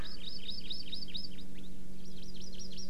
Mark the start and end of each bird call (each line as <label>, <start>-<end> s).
Hawaii Amakihi (Chlorodrepanis virens), 0.0-1.7 s
Hawaii Amakihi (Chlorodrepanis virens), 2.0-2.9 s